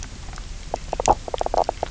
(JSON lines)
{"label": "biophony, knock croak", "recorder": "SoundTrap 300"}